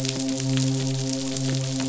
{"label": "biophony, midshipman", "recorder": "SoundTrap 500"}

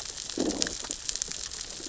{"label": "biophony, growl", "recorder": "SoundTrap 600 or HydroMoth"}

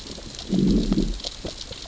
{"label": "biophony, growl", "recorder": "SoundTrap 600 or HydroMoth"}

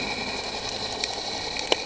{"label": "anthrophony, boat engine", "recorder": "HydroMoth"}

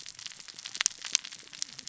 {"label": "biophony, cascading saw", "recorder": "SoundTrap 600 or HydroMoth"}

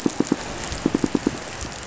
{"label": "biophony, pulse", "recorder": "SoundTrap 500"}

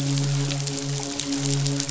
{"label": "biophony, midshipman", "recorder": "SoundTrap 500"}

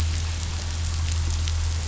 {"label": "anthrophony, boat engine", "recorder": "SoundTrap 500"}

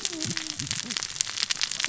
{"label": "biophony, cascading saw", "recorder": "SoundTrap 600 or HydroMoth"}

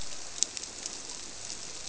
{"label": "biophony", "recorder": "SoundTrap 300"}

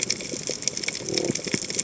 {"label": "biophony", "recorder": "HydroMoth"}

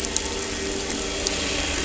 {"label": "anthrophony, boat engine", "recorder": "SoundTrap 300"}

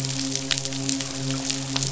{"label": "biophony, midshipman", "recorder": "SoundTrap 500"}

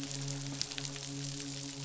{"label": "biophony, midshipman", "recorder": "SoundTrap 500"}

